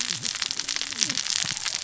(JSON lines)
{"label": "biophony, cascading saw", "recorder": "SoundTrap 600 or HydroMoth"}